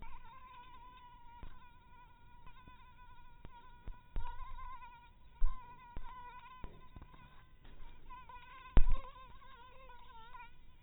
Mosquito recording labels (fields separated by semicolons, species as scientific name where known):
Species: mosquito; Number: one; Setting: cup